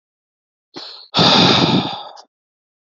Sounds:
Sigh